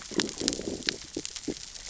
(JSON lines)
{"label": "biophony, growl", "recorder": "SoundTrap 600 or HydroMoth"}